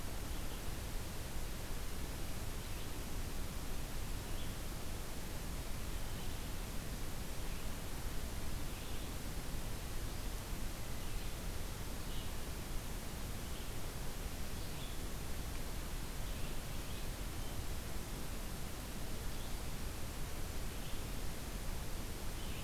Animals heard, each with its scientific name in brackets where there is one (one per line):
Red-eyed Vireo (Vireo olivaceus)